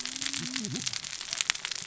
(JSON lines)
{"label": "biophony, cascading saw", "recorder": "SoundTrap 600 or HydroMoth"}